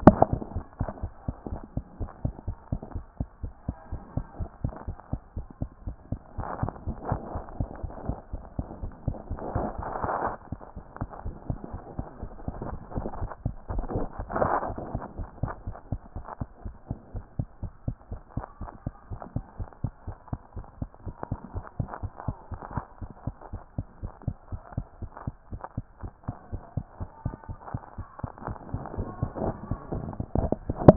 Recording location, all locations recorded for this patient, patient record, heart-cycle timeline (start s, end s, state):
mitral valve (MV)
aortic valve (AV)+mitral valve (MV)
#Age: Child
#Sex: Female
#Height: 78.0 cm
#Weight: 12.7 kg
#Pregnancy status: False
#Murmur: Absent
#Murmur locations: nan
#Most audible location: nan
#Systolic murmur timing: nan
#Systolic murmur shape: nan
#Systolic murmur grading: nan
#Systolic murmur pitch: nan
#Systolic murmur quality: nan
#Diastolic murmur timing: nan
#Diastolic murmur shape: nan
#Diastolic murmur grading: nan
#Diastolic murmur pitch: nan
#Diastolic murmur quality: nan
#Outcome: Abnormal
#Campaign: 2014 screening campaign
0.00	0.48	unannotated
0.48	0.54	diastole
0.54	0.64	S1
0.64	0.80	systole
0.80	0.88	S2
0.88	1.02	diastole
1.02	1.12	S1
1.12	1.26	systole
1.26	1.34	S2
1.34	1.50	diastole
1.50	1.62	S1
1.62	1.76	systole
1.76	1.84	S2
1.84	2.00	diastole
2.00	2.10	S1
2.10	2.24	systole
2.24	2.34	S2
2.34	2.48	diastole
2.48	2.56	S1
2.56	2.70	systole
2.70	2.78	S2
2.78	2.94	diastole
2.94	3.04	S1
3.04	3.18	systole
3.18	3.26	S2
3.26	3.42	diastole
3.42	3.52	S1
3.52	3.66	systole
3.66	3.76	S2
3.76	3.92	diastole
3.92	4.02	S1
4.02	4.16	systole
4.16	4.24	S2
4.24	4.38	diastole
4.38	4.50	S1
4.50	4.62	systole
4.62	4.72	S2
4.72	4.88	diastole
4.88	4.96	S1
4.96	5.12	systole
5.12	5.21	S2
5.21	5.36	diastole
5.36	5.46	S1
5.46	5.60	systole
5.60	5.68	S2
5.68	5.86	diastole
5.86	5.96	S1
5.96	6.10	systole
6.10	6.20	S2
6.20	6.39	diastole
6.39	6.48	S1
6.48	6.62	systole
6.62	6.72	S2
6.72	6.88	diastole
6.88	6.96	S1
6.96	7.10	systole
7.10	7.19	S2
7.19	7.34	diastole
7.34	30.96	unannotated